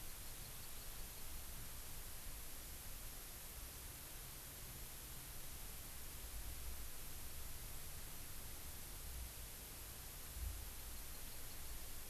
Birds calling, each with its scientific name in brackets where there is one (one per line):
Hawaii Amakihi (Chlorodrepanis virens)